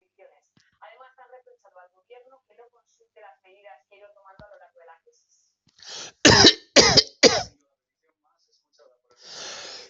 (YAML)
expert_labels:
- quality: good
  cough_type: dry
  dyspnea: false
  wheezing: false
  stridor: false
  choking: false
  congestion: false
  nothing: true
  diagnosis: healthy cough
  severity: pseudocough/healthy cough
age: 82
gender: female
respiratory_condition: false
fever_muscle_pain: false
status: COVID-19